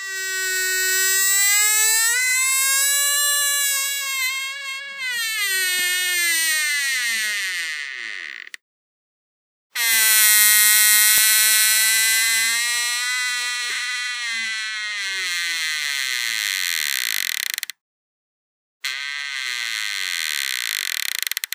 How many objects are making this creaking noise?
one